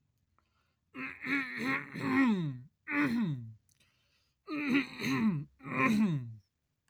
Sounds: Throat clearing